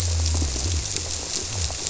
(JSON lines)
{"label": "biophony", "recorder": "SoundTrap 300"}